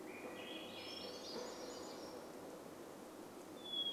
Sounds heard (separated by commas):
warbler song, Hermit Thrush song, Swainson's Thrush song, vehicle engine